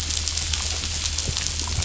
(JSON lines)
{"label": "anthrophony, boat engine", "recorder": "SoundTrap 500"}